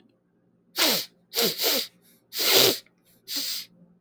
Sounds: Sniff